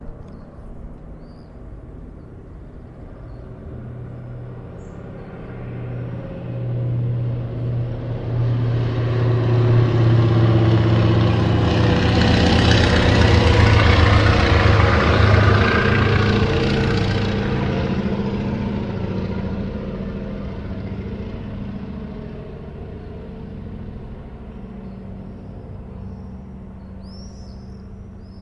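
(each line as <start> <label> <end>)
0.0 An airplane flies overhead loudly. 28.4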